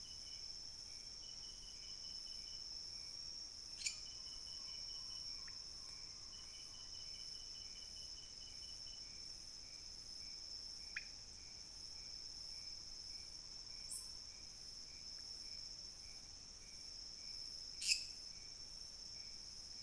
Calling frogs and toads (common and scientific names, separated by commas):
lesser tree frog (Dendropsophus minutus), pointedbelly frog (Leptodactylus podicipinus)